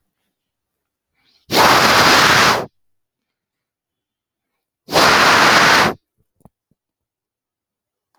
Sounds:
Sniff